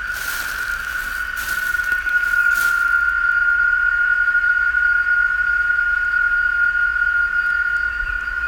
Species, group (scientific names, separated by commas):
Quesada gigas, Cicadidae